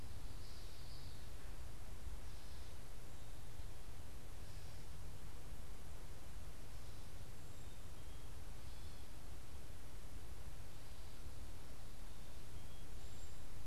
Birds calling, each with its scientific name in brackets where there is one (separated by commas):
Common Yellowthroat (Geothlypis trichas), Black-capped Chickadee (Poecile atricapillus)